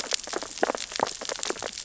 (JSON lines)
{"label": "biophony, sea urchins (Echinidae)", "recorder": "SoundTrap 600 or HydroMoth"}